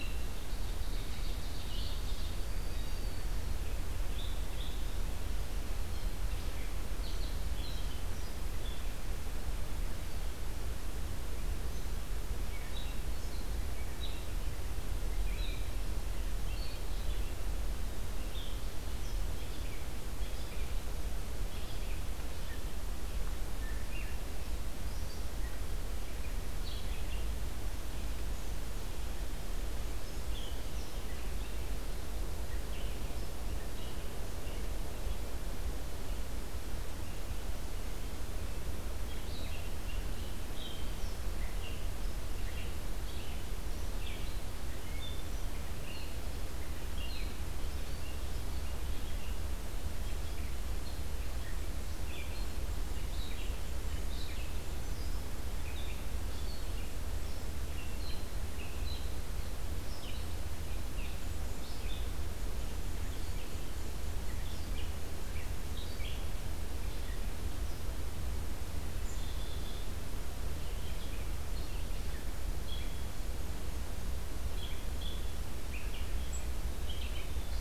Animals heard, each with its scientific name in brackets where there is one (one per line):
Black-capped Chickadee (Poecile atricapillus)
Ovenbird (Seiurus aurocapilla)
Black-throated Green Warbler (Setophaga virens)
Red-eyed Vireo (Vireo olivaceus)